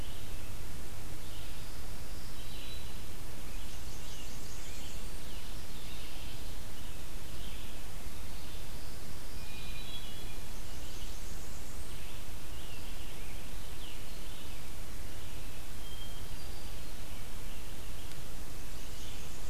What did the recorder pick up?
Red-eyed Vireo, Black-throated Green Warbler, Blackburnian Warbler, Scarlet Tanager, Hermit Thrush